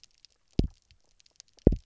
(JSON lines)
{"label": "biophony, double pulse", "recorder": "SoundTrap 300"}